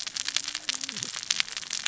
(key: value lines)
label: biophony, cascading saw
recorder: SoundTrap 600 or HydroMoth